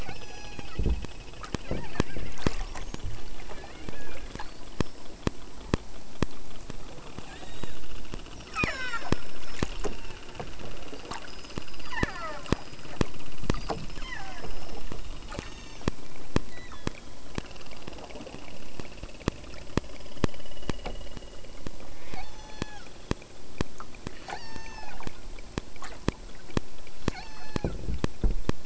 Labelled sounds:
0.0	0.8	killer whale, southern Alaska resident, 0.41 to 8.0 kHz
1.4	5.4	killer whale, southern Alaska resident, 0.46 to 7.4 kHz
7.2	7.9	killer whale, southern Alaska resident, 0.59 to 8.0 kHz
8.4	10.3	killer whale, southern Alaska resident, 0.28 to 8.0 kHz
11.1	13.0	killer whale, southern Alaska resident, 0.36 to 8.0 kHz
13.5	15.9	killer whale, southern Alaska resident, 0.36 to 8.0 kHz
16.4	17.2	killer whale, southern Alaska resident, 1.1 to 4.4 kHz
21.8	22.9	killer whale, southern Alaska resident, 0.49 to 8.0 kHz
24.0	25.1	killer whale, southern Alaska resident, 0.33 to 8.0 kHz
27.0	27.7	killer whale, southern Alaska resident, 0.51 to 8.0 kHz

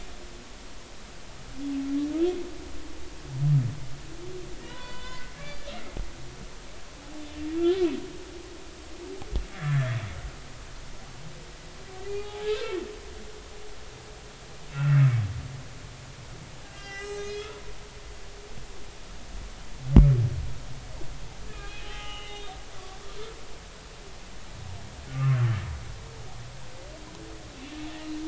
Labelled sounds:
4.6	5.7	humpback whale, 0.93 to 3.1 kHz
7.6	7.9	humpback whale, 1.3 to 1.6 kHz
9.6	10.0	humpback whale, 1.6 to 2.0 kHz
12.1	12.6	humpback whale, 0.80 to 5.2 kHz
14.7	15.0	humpback whale, 2.5 to 2.8 kHz
16.6	17.5	humpback whale, 1.2 to 6.7 kHz
21.5	23.0	humpback whale, 0.80 to 3.8 kHz
25.1	25.4	humpback whale, 1.0 to 1.4 kHz

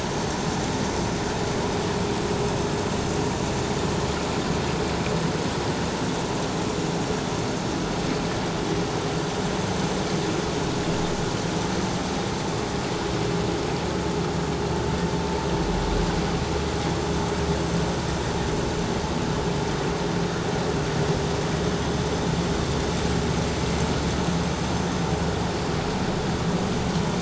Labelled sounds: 12.4	12.7	vessel noise, 7.1 to 7.3 kHz

